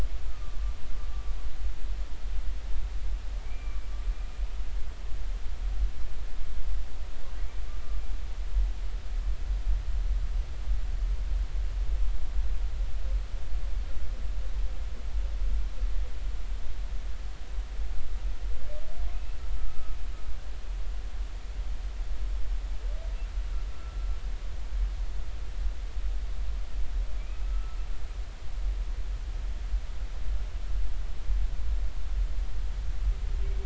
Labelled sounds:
0.3	0.6	humpback whale, 1.1 to 1.4 kHz
3.4	4.4	humpback whale, 2.1 to 2.5 kHz
19.1	20.0	humpback whale, 1.2 to 2.7 kHz
23.7	24.0	humpback whale, 1.3 to 1.4 kHz
27.2	27.8	humpback whale, 1.3 to 2.6 kHz

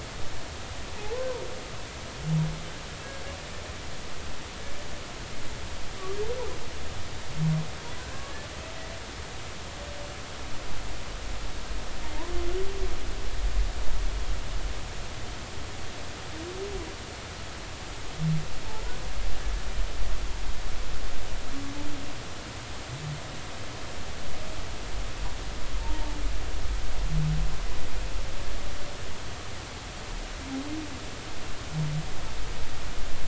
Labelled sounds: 8.1	8.3	humpback whale, 0.99 to 1.2 kHz
25.8	26.2	humpback whale, 0.83 to 0.96 kHz

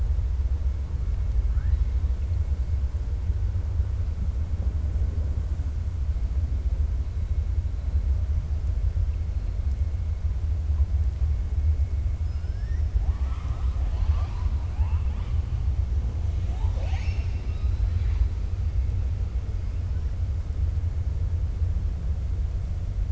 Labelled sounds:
12.2	14.5	killer whale, 0.62 to 5.9 kHz
16.4	18.3	killer whale, 0.60 to 7.7 kHz

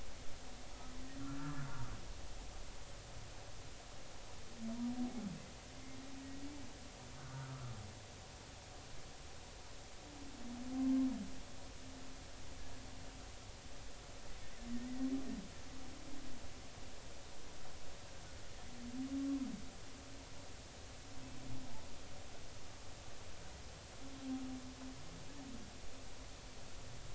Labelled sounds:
1.2	1.7	humpback whale, 1.1 to 1.6 kHz
7.2	7.7	humpback whale, 1.1 to 1.6 kHz
10.8	11.1	humpback whale, 0.99 to 1.1 kHz
14.9	15.1	humpback whale, 1.8 to 2.1 kHz

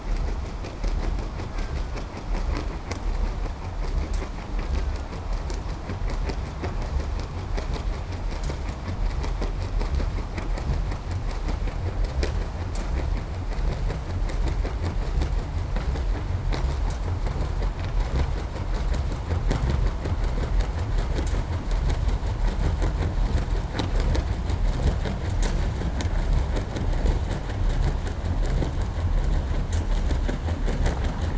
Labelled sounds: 1.3	2.3	killer whale, Bigg's (transient), 1.1 to 2.2 kHz
4.3	5.8	killer whale, Bigg's (transient), 1.1 to 2.0 kHz

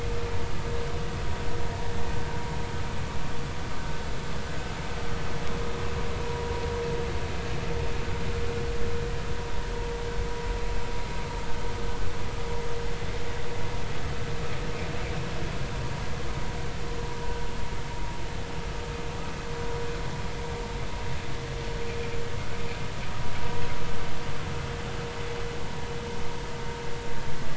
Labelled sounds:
6.2	6.5	vessel noise, 0.93 to 0.99 kHz

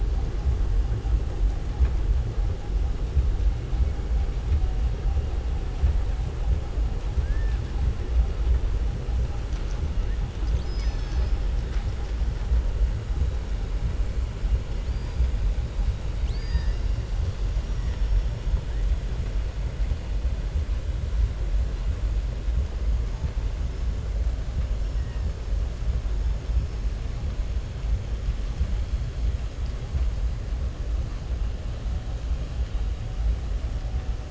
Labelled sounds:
7.2	7.6	killer whale, southern resident, 1.5 to 2.6 kHz
16.1	16.9	killer whale, southern resident, 0.96 to 6.4 kHz
17.5	18.3	killer whale, southern resident, 5.4 to 5.8 kHz

